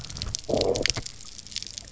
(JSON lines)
{"label": "biophony, low growl", "recorder": "SoundTrap 300"}